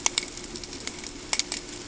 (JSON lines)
{"label": "ambient", "recorder": "HydroMoth"}